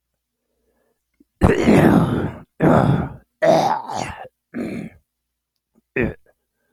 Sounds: Throat clearing